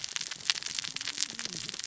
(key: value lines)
label: biophony, cascading saw
recorder: SoundTrap 600 or HydroMoth